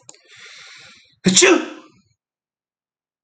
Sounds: Sneeze